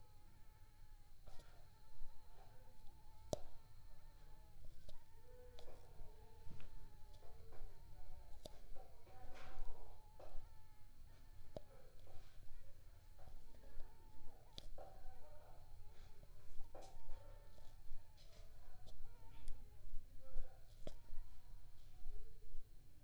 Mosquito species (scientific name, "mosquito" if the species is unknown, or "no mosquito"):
Aedes aegypti